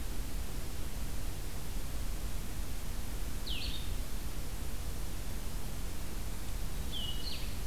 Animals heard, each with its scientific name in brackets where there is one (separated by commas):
Winter Wren (Troglodytes hiemalis), Blue-headed Vireo (Vireo solitarius)